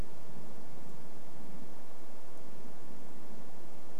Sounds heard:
forest ambience